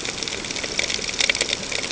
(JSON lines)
{"label": "ambient", "recorder": "HydroMoth"}